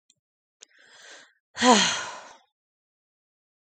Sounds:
Sigh